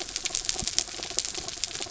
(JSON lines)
{"label": "anthrophony, mechanical", "recorder": "SoundTrap 300"}